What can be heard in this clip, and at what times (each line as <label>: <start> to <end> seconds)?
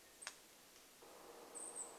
Golden-crowned Kinglet call: 0 to 2 seconds
woodpecker drumming: 0 to 2 seconds